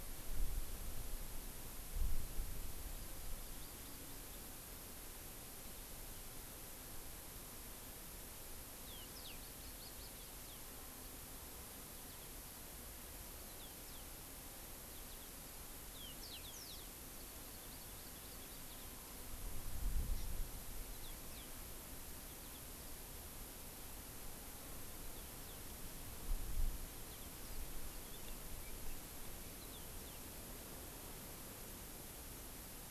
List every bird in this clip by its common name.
Hawaii Amakihi, Yellow-fronted Canary